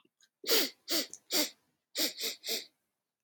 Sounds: Sniff